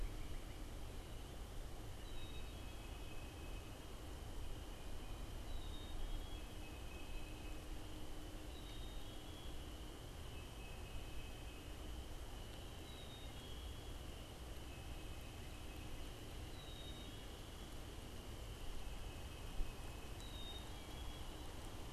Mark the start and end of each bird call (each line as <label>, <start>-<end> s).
Tufted Titmouse (Baeolophus bicolor), 2.0-4.0 s
Tufted Titmouse (Baeolophus bicolor), 5.5-7.8 s
Black-capped Chickadee (Poecile atricapillus), 8.3-9.7 s
Tufted Titmouse (Baeolophus bicolor), 10.1-11.8 s
Black-capped Chickadee (Poecile atricapillus), 12.7-14.1 s
Tufted Titmouse (Baeolophus bicolor), 14.5-16.1 s
Black-capped Chickadee (Poecile atricapillus), 16.4-17.8 s
Tufted Titmouse (Baeolophus bicolor), 18.6-20.3 s
Black-capped Chickadee (Poecile atricapillus), 20.1-21.5 s